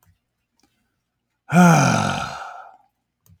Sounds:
Sigh